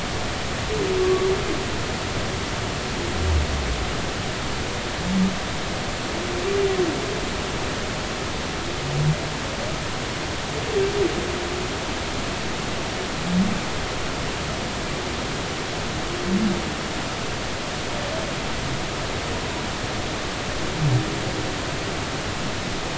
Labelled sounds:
1.0	1.3	humpback whale, 1.1 to 1.2 kHz

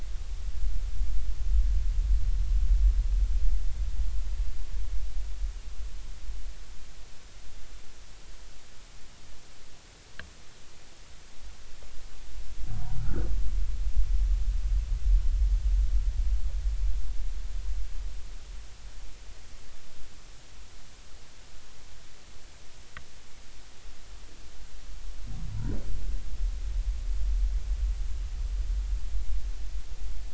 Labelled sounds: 13.0	13.3	humpback whale, 1.2 to 1.5 kHz
25.5	25.8	humpback whale, 0.90 to 1.0 kHz

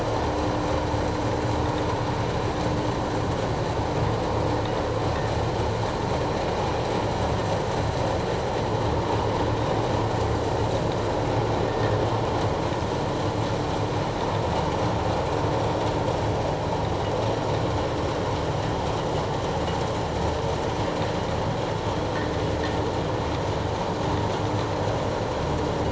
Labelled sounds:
11.7	12.0	vessel noise, 1.7 to 1.9 kHz

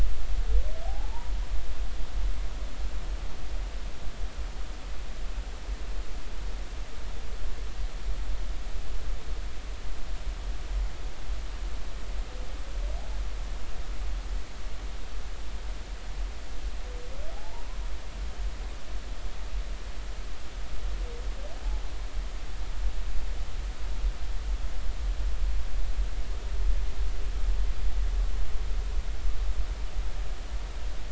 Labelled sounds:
0.8	1.3	humpback whale, 0.80 to 1.0 kHz
17.3	17.6	humpback whale, 0.80 to 0.99 kHz

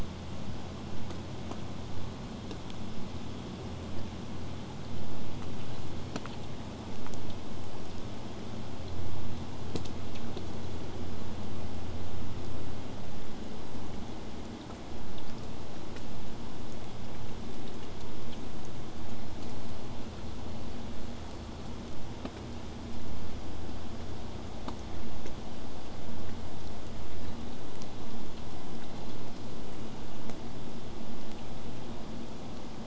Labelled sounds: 5.6	6.4	killer whale, 0.69 to 5.0 kHz
24.6	25.4	killer whale, whistle, 7.2 to 8.0 kHz
28.8	29.6	killer whale, 3.9 to 4.4 kHz

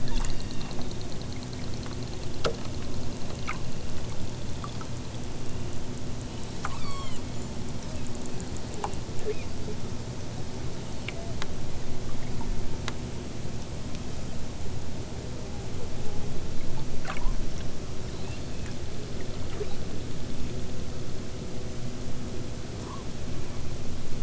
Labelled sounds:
0.1	0.9	killer whale, southern Alaska resident, 1.3 to 8.0 kHz
6.6	7.2	killer whale, southern Alaska resident, 0.64 to 8.0 kHz
9.2	9.6	killer whale, southern Alaska resident, 1.5 to 5.5 kHz
18.1	18.5	killer whale, southern Alaska resident, 2.3 to 4.7 kHz
19.6	19.8	killer whale, southern Alaska resident, 2.2 to 6.9 kHz

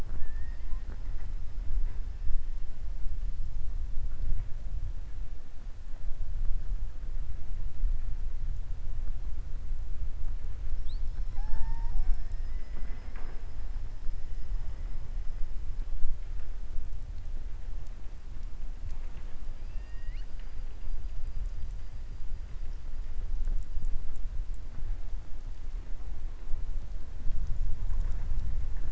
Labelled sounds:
19.6	20.5	killer whale, southern resident, 1.6 to 4.8 kHz

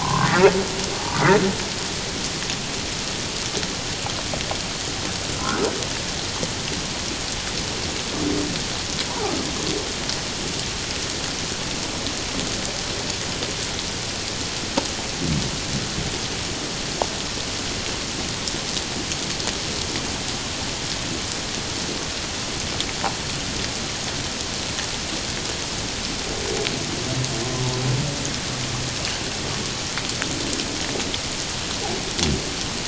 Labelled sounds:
0.0	0.5	humpback whale, 0.84 to 1.6 kHz
9.1	9.3	humpback whale, 0.78 to 1.0 kHz

